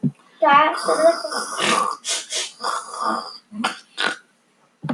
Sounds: Throat clearing